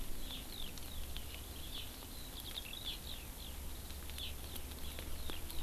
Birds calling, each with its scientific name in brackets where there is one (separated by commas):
Hawaii Amakihi (Chlorodrepanis virens), Eurasian Skylark (Alauda arvensis)